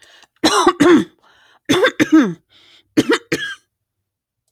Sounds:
Throat clearing